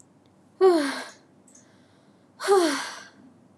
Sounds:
Sigh